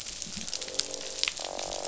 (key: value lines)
label: biophony, croak
recorder: SoundTrap 500